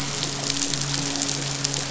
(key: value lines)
label: biophony, midshipman
recorder: SoundTrap 500